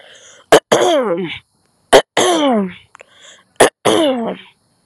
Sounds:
Throat clearing